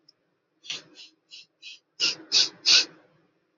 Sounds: Sniff